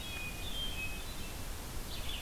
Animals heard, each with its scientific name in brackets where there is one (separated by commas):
Hermit Thrush (Catharus guttatus), Red-eyed Vireo (Vireo olivaceus)